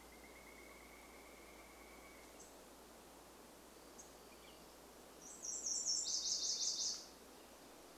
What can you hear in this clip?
Pileated Woodpecker call, unidentified bird chip note, unidentified sound, Nashville Warbler song, Black-headed Grosbeak song